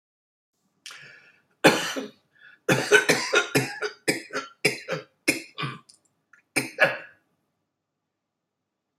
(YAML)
expert_labels:
- quality: good
  cough_type: dry
  dyspnea: false
  wheezing: false
  stridor: false
  choking: false
  congestion: false
  nothing: true
  diagnosis: obstructive lung disease
  severity: severe
age: 76
gender: male
respiratory_condition: false
fever_muscle_pain: false
status: healthy